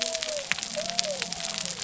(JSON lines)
{"label": "biophony", "recorder": "SoundTrap 300"}